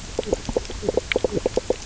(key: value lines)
label: biophony, knock croak
recorder: SoundTrap 300